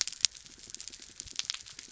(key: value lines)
label: biophony
recorder: SoundTrap 300